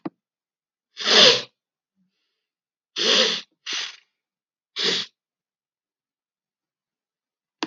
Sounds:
Sniff